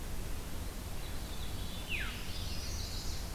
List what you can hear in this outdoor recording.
Veery, Chestnut-sided Warbler